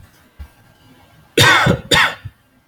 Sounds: Cough